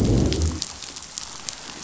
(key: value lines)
label: biophony, growl
recorder: SoundTrap 500